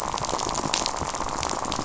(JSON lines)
{"label": "biophony, rattle", "recorder": "SoundTrap 500"}